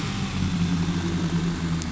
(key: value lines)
label: anthrophony, boat engine
recorder: SoundTrap 500